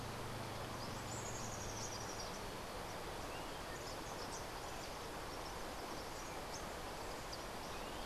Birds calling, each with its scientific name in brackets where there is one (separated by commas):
Rufous-tailed Hummingbird (Amazilia tzacatl), Rufous-capped Warbler (Basileuterus rufifrons)